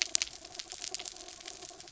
{"label": "anthrophony, mechanical", "recorder": "SoundTrap 300"}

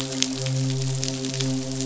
{"label": "biophony, midshipman", "recorder": "SoundTrap 500"}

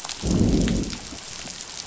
{"label": "biophony, growl", "recorder": "SoundTrap 500"}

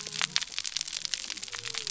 {"label": "biophony", "recorder": "SoundTrap 300"}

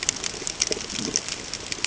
{"label": "ambient", "recorder": "HydroMoth"}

